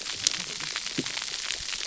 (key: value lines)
label: biophony, cascading saw
recorder: SoundTrap 300